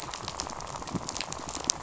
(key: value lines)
label: biophony, rattle
recorder: SoundTrap 500